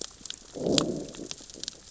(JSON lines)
{"label": "biophony, growl", "recorder": "SoundTrap 600 or HydroMoth"}